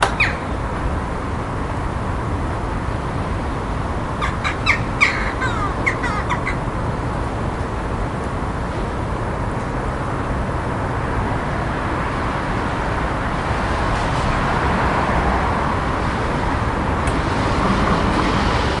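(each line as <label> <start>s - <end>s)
Cars moving continuously in the background. 0.0s - 18.8s
Birds chirping. 0.0s - 0.5s
Birds chirping. 4.2s - 6.6s
A car drives by in the distance. 11.7s - 16.1s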